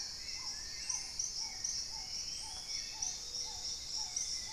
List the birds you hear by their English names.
Long-billed Woodcreeper, Black-tailed Trogon, Hauxwell's Thrush, Paradise Tanager, Dusky-throated Antshrike, Gray-fronted Dove